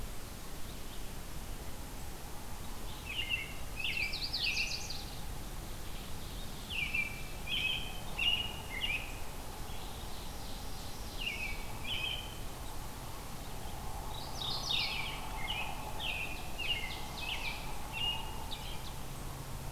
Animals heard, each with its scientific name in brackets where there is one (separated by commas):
Mourning Warbler (Geothlypis philadelphia), Yellow-rumped Warbler (Setophaga coronata), American Robin (Turdus migratorius), Ovenbird (Seiurus aurocapilla)